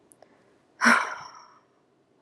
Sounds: Sigh